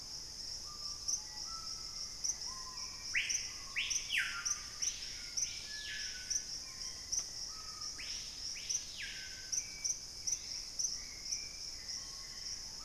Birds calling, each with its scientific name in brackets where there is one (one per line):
Screaming Piha (Lipaugus vociferans)
Purple-throated Euphonia (Euphonia chlorotica)
Hauxwell's Thrush (Turdus hauxwelli)
Black-faced Antthrush (Formicarius analis)